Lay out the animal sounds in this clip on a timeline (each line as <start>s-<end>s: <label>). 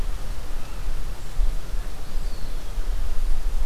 1.9s-2.8s: Eastern Wood-Pewee (Contopus virens)